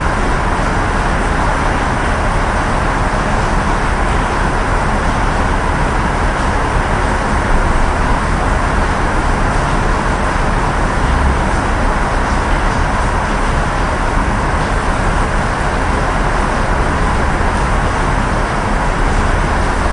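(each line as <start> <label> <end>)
0.0 Rain pouring continuously outdoors. 19.9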